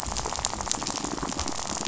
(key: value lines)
label: biophony, rattle
recorder: SoundTrap 500